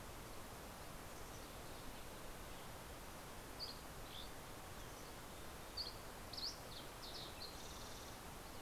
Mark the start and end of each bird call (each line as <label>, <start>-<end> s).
Dusky Flycatcher (Empidonax oberholseri), 3.2-6.9 s
Fox Sparrow (Passerella iliaca), 5.8-8.6 s
Western Tanager (Piranga ludoviciana), 7.5-8.6 s